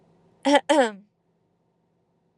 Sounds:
Throat clearing